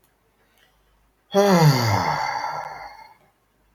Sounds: Sigh